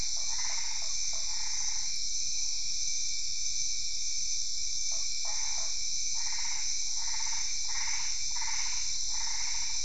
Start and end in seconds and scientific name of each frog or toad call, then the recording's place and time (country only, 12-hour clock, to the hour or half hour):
0.1	1.3	Boana lundii
0.2	1.9	Boana albopunctata
4.9	5.7	Boana lundii
5.2	9.8	Boana albopunctata
Brazil, 8pm